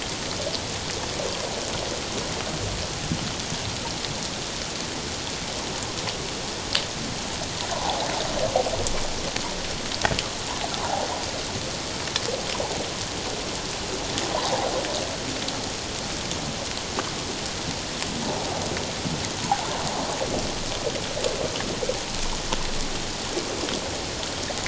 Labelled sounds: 7.7	8.0	water noise, 0.78 to 1.1 kHz
14.3	14.7	water noise, 0.78 to 1.1 kHz
19.4	19.7	water noise, 0.78 to 1.0 kHz

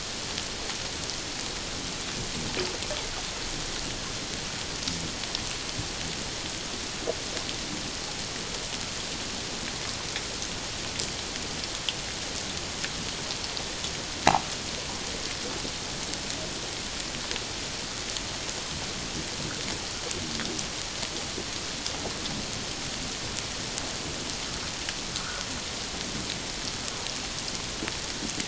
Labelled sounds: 25.2	25.4	humpback whale, 1.2 to 1.6 kHz

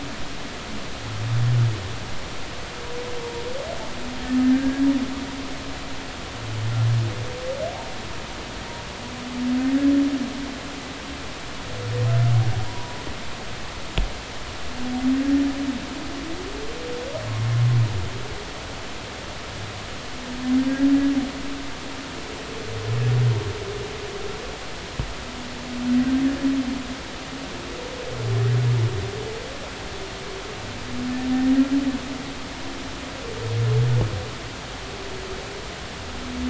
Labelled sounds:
4.5	4.8	humpback whale, 1.5 to 1.7 kHz
12.6	13.0	humpback whale, 0.93 to 1.0 kHz

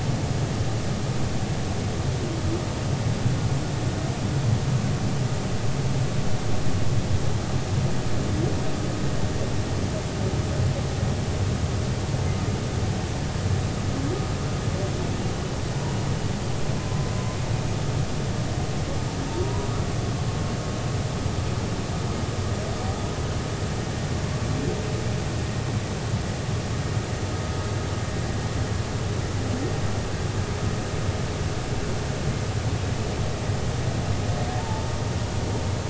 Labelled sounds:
19.3	19.7	humpback whale, 0.86 to 1.1 kHz
34.6	34.9	humpback whale, 0.83 to 0.96 kHz

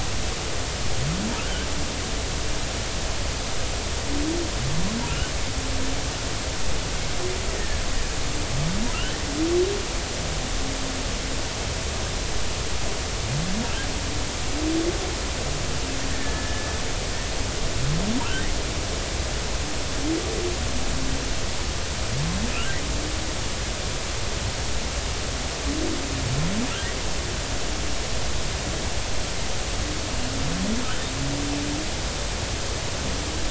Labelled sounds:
5.1	5.3	humpback whale, 2.5 to 3.1 kHz
7.6	7.8	killer whale, Bigg's (transient), 1.6 to 1.9 kHz
8.9	9.2	humpback whale, 2.6 to 3.1 kHz
16.1	16.7	killer whale, Bigg's (transient), 1.7 to 1.9 kHz

